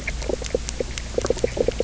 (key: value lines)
label: biophony, knock croak
recorder: SoundTrap 300